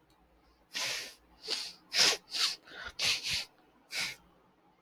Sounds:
Sniff